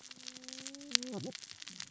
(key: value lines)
label: biophony, cascading saw
recorder: SoundTrap 600 or HydroMoth